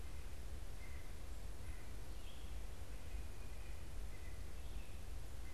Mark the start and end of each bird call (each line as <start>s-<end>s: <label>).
0.0s-5.5s: White-breasted Nuthatch (Sitta carolinensis)